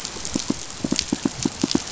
{"label": "biophony, pulse", "recorder": "SoundTrap 500"}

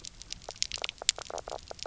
{"label": "biophony, knock croak", "recorder": "SoundTrap 300"}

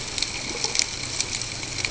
{"label": "ambient", "recorder": "HydroMoth"}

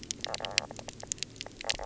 {"label": "biophony, knock croak", "recorder": "SoundTrap 300"}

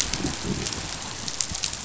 {"label": "biophony, growl", "recorder": "SoundTrap 500"}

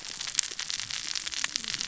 {"label": "biophony, cascading saw", "recorder": "SoundTrap 600 or HydroMoth"}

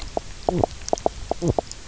{"label": "biophony, knock croak", "recorder": "SoundTrap 300"}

